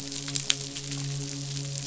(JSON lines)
{"label": "biophony, midshipman", "recorder": "SoundTrap 500"}